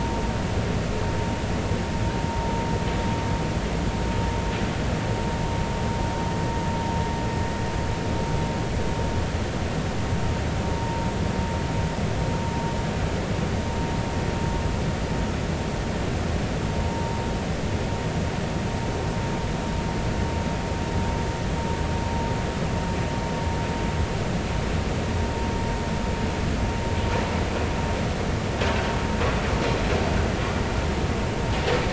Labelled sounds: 10.8	11.1	vessel noise, 0.86 to 0.99 kHz
16.8	17.2	vessel noise, 0.86 to 0.96 kHz

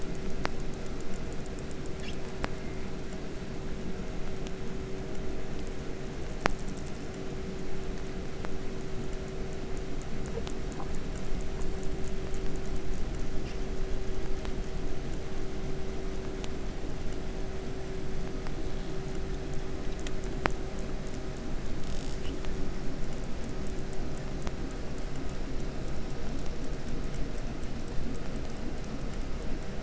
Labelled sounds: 2.0	2.2	killer whale, 1.3 to 8.0 kHz
13.4	13.6	killer whale, 1.0 to 7.8 kHz
21.8	22.3	killer whale, southern resident, J pod, call S08i, 0.45 to 8.0 kHz

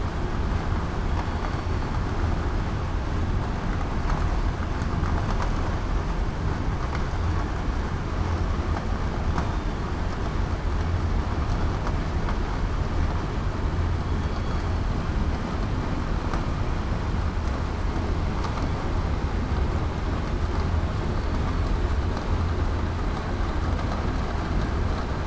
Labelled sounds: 9.4	9.8	killer whale, southern resident, 3.4 to 3.7 kHz

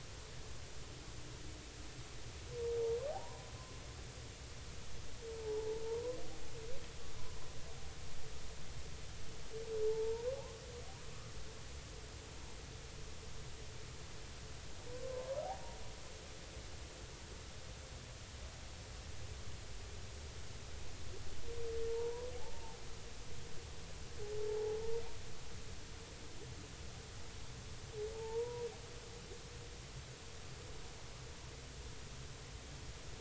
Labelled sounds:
3.1	3.5	humpback whale, 0.80 to 1.1 kHz
5.4	5.8	humpback whale, 0.80 to 0.99 kHz
9.8	10.3	humpback whale, 0.83 to 1.0 kHz
14.9	15.4	humpback whale, 0.86 to 1.1 kHz
21.9	22.8	humpback whale, 0.80 to 1.1 kHz
24.4	24.8	humpback whale, 0.80 to 0.99 kHz
28.1	28.7	humpback whale, 0.80 to 1.0 kHz

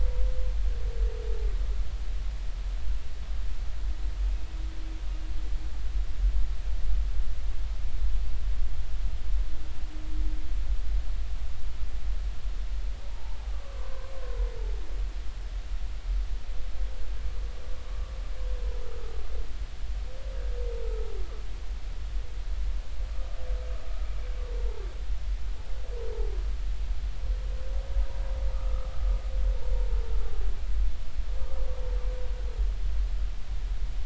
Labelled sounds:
13.1	13.4	humpback whale, 0.80 to 1.1 kHz
28.5	28.9	humpback whale, 1.1 to 1.3 kHz

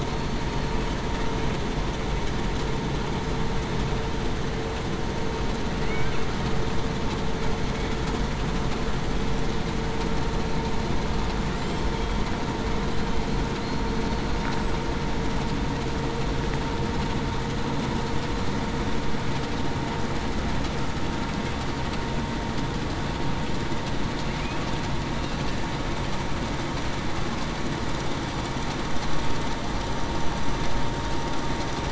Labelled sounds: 0.1	0.4	killer whale, southern resident, 4.3 to 4.5 kHz
13.6	14.0	killer whale, southern resident, 4.2 to 4.4 kHz

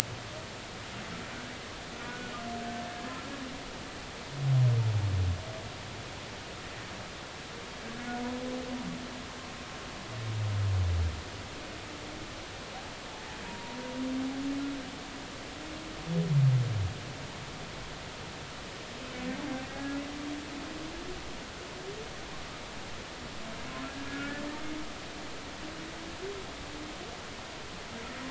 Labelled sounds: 2.1	2.3	humpback whale, 1.4 to 1.5 kHz
13.4	13.8	humpback whale, 0.90 to 0.99 kHz
19.7	20.0	humpback whale, 1.5 to 1.7 kHz
24.1	24.4	humpback whale, 1.3 to 1.5 kHz

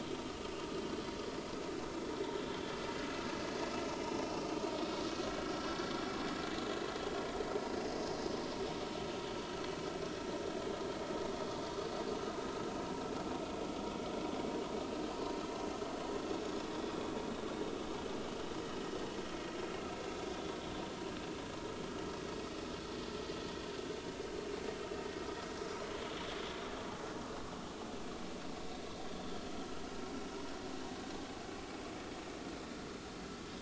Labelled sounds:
3.9	4.3	vessel noise, 5.2 to 5.3 kHz
20.3	20.6	vessel noise, 3.3 to 3.7 kHz

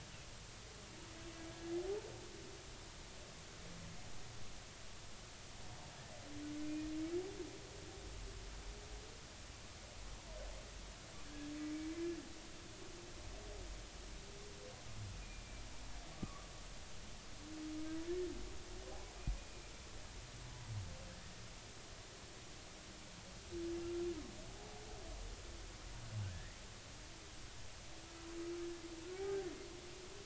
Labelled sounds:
11.2	11.5	humpback whale, 1.5 to 1.7 kHz
15.2	16.5	humpback whale, 1.1 to 2.5 kHz
26.3	26.6	humpback whale, 1.6 to 2.1 kHz
29.2	29.5	humpback whale, 1.4 to 1.6 kHz

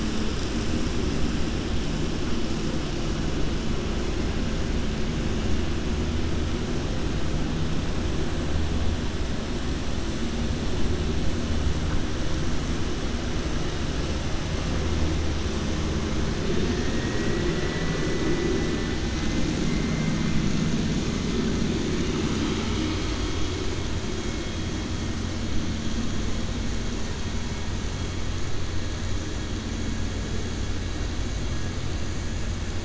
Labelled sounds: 16.6	18.7	vessel noise, 0.91 to 2.9 kHz

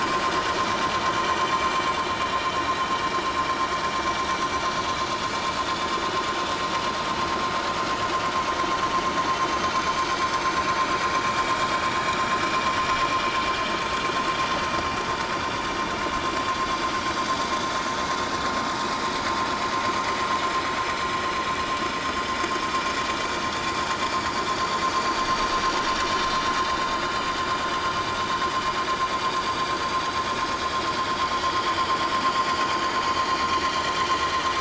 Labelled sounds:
4.5	4.8	vessel noise, 5.8 to 6.0 kHz
21.9	22.2	vessel noise, 6.3 to 6.6 kHz
33.2	33.5	vessel noise, 4.1 to 4.2 kHz

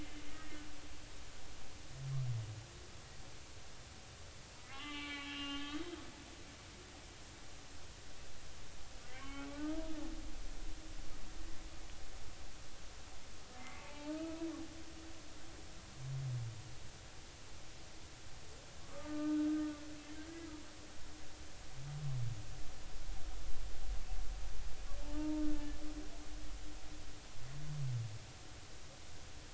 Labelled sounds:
0.3	0.6	humpback whale, 1.8 to 2.0 kHz
4.7	5.9	humpback whale, 0.80 to 3.9 kHz
9.1	9.8	humpback whale, 1.0 to 3.1 kHz
13.6	14.4	humpback whale, 0.80 to 2.7 kHz
18.8	19.6	humpback whale, 1.1 to 1.6 kHz
25.0	25.4	humpback whale, 0.83 to 0.96 kHz
26.5	26.8	humpback whale, 1.7 to 1.8 kHz

